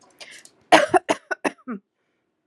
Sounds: Cough